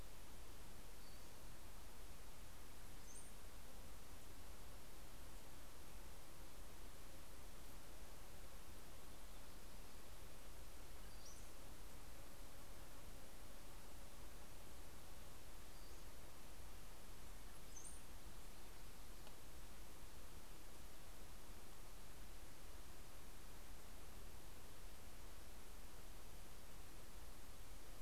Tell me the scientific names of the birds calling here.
Empidonax difficilis, Molothrus ater